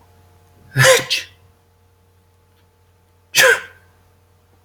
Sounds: Sneeze